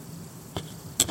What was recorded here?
Nemobius sylvestris, an orthopteran